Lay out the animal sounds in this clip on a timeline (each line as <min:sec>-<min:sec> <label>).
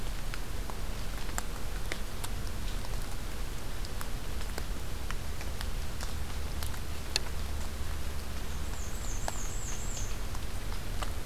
0:08.5-0:10.2 Black-and-white Warbler (Mniotilta varia)